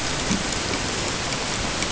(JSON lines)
{"label": "ambient", "recorder": "HydroMoth"}